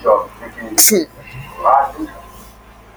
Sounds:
Sneeze